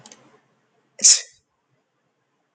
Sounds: Sneeze